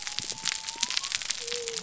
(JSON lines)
{"label": "biophony", "recorder": "SoundTrap 300"}